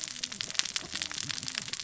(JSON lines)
{"label": "biophony, cascading saw", "recorder": "SoundTrap 600 or HydroMoth"}